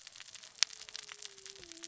{"label": "biophony, cascading saw", "recorder": "SoundTrap 600 or HydroMoth"}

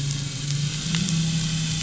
{"label": "anthrophony, boat engine", "recorder": "SoundTrap 500"}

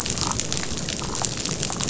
{"label": "biophony", "recorder": "SoundTrap 500"}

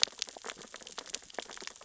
{"label": "biophony, sea urchins (Echinidae)", "recorder": "SoundTrap 600 or HydroMoth"}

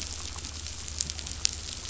{"label": "anthrophony, boat engine", "recorder": "SoundTrap 500"}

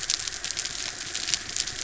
{"label": "anthrophony, mechanical", "recorder": "SoundTrap 300"}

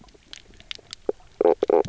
{"label": "biophony, knock croak", "recorder": "SoundTrap 300"}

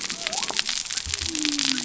{"label": "biophony", "recorder": "SoundTrap 300"}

